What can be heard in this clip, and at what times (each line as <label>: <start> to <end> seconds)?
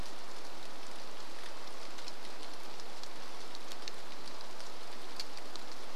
Red-breasted Nuthatch song: 0 to 2 seconds
rain: 0 to 6 seconds